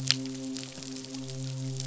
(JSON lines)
{"label": "biophony, midshipman", "recorder": "SoundTrap 500"}